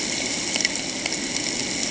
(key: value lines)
label: ambient
recorder: HydroMoth